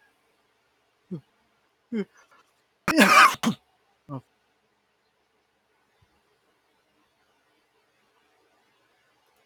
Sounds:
Sneeze